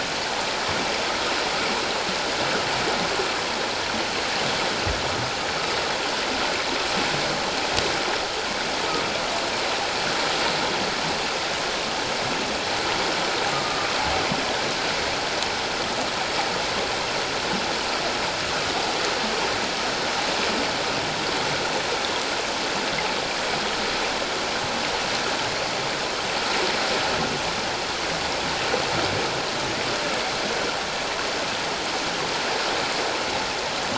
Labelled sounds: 13.5	13.9	humpback whale, 1.2 to 1.3 kHz

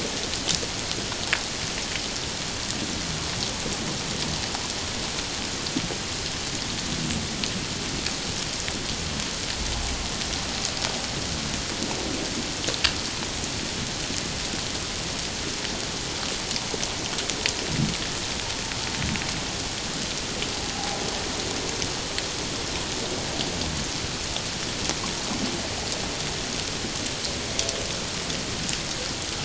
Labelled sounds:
20.7	21.0	humpback whale, 0.78 to 0.88 kHz

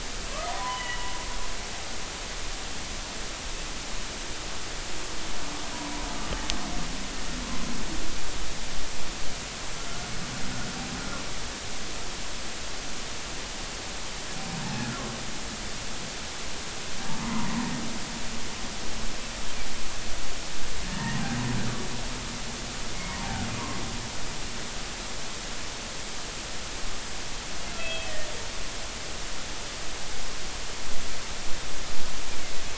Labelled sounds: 0.5	1.1	humpback whale, 0.93 to 3.1 kHz
5.7	6.0	humpback whale, 0.93 to 1.1 kHz
20.8	21.2	humpback whale, 1.7 to 1.9 kHz
23.1	23.8	humpback whale, 0.80 to 1.2 kHz
27.8	28.1	humpback whale, 2.5 to 3.4 kHz

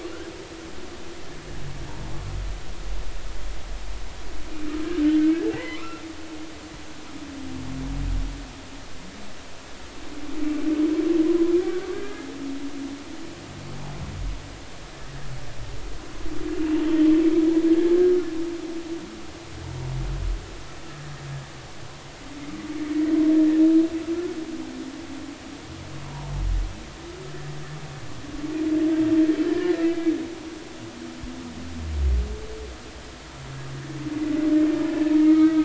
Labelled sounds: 1.9	2.1	humpback whale, 0.83 to 0.99 kHz
5.5	6.0	humpback whale, 0.80 to 2.1 kHz
11.9	12.3	humpback whale, 1.5 to 1.7 kHz
29.5	30.1	humpback whale, 1.6 to 2.4 kHz
34.8	35.6	humpback whale, 1.2 to 2.3 kHz

